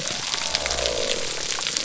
{"label": "biophony", "recorder": "SoundTrap 300"}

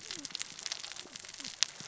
{"label": "biophony, cascading saw", "recorder": "SoundTrap 600 or HydroMoth"}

